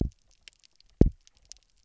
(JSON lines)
{"label": "biophony, double pulse", "recorder": "SoundTrap 300"}